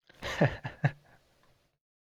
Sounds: Laughter